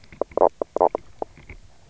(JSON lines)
{"label": "biophony, knock croak", "recorder": "SoundTrap 300"}